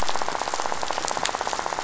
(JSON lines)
{"label": "biophony, rattle", "recorder": "SoundTrap 500"}